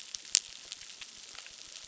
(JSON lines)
{"label": "biophony, crackle", "recorder": "SoundTrap 600"}